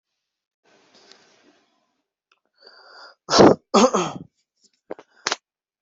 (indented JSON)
{
  "expert_labels": [
    {
      "quality": "ok",
      "cough_type": "unknown",
      "dyspnea": false,
      "wheezing": false,
      "stridor": false,
      "choking": false,
      "congestion": false,
      "nothing": true,
      "diagnosis": "healthy cough",
      "severity": "pseudocough/healthy cough"
    }
  ]
}